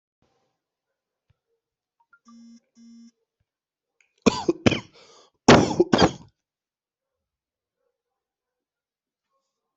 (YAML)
expert_labels:
- quality: ok
  cough_type: wet
  dyspnea: false
  wheezing: false
  stridor: false
  choking: false
  congestion: false
  nothing: true
  diagnosis: lower respiratory tract infection
  severity: mild
age: 42
gender: male
respiratory_condition: false
fever_muscle_pain: false
status: healthy